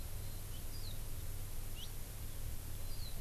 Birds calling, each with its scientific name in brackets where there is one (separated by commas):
Warbling White-eye (Zosterops japonicus)